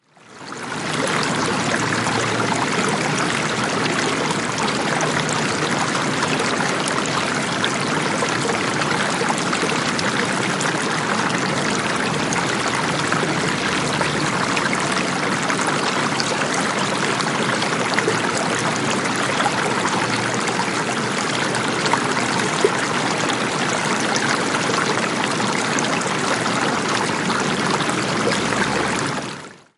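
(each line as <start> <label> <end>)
0.3 Water splashing. 29.6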